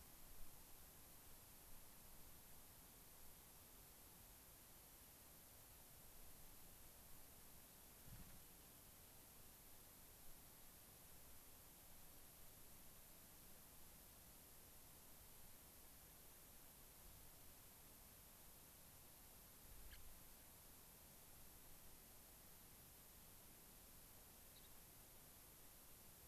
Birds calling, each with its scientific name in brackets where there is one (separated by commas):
Gray-crowned Rosy-Finch (Leucosticte tephrocotis), unidentified bird